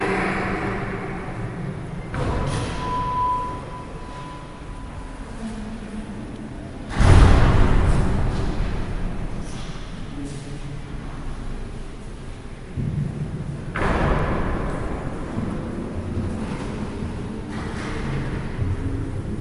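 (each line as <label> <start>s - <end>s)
An echoing choir. 0.0s - 1.1s
People walking with their footsteps echoing. 0.0s - 19.4s
A deep, heavy thud is followed by a resonant echo as a large door slams shut. 2.1s - 3.6s
A sharp, piercing noise from a microphone malfunction. 2.6s - 5.8s
People talking with an echo. 5.3s - 7.0s
A deep, heavy thud is followed by a resonant echo as a large door slams shut. 6.9s - 9.2s
People talking with an echo. 10.4s - 11.7s
A muffled thumping sound as the microphone is tapped. 12.8s - 13.7s
A deep, heavy thud is followed by a resonant echo as a large door slams shut. 13.7s - 15.0s
A door shuts with a soft click. 17.5s - 18.5s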